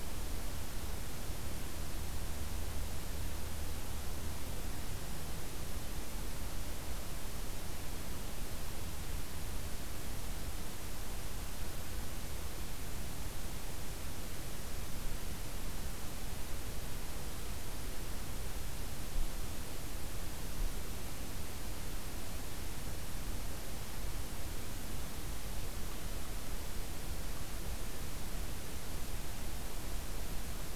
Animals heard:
forest ambience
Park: Acadia National Park